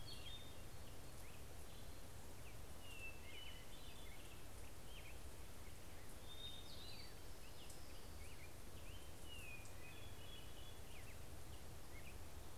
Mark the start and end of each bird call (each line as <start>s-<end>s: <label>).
0.0s-1.3s: Hermit Thrush (Catharus guttatus)
0.0s-1.4s: Black-headed Grosbeak (Pheucticus melanocephalus)
2.5s-4.4s: Hermit Thrush (Catharus guttatus)
4.3s-11.3s: Black-headed Grosbeak (Pheucticus melanocephalus)
6.2s-7.3s: Hermit Thrush (Catharus guttatus)
7.1s-8.7s: Orange-crowned Warbler (Leiothlypis celata)
9.7s-11.2s: Hermit Thrush (Catharus guttatus)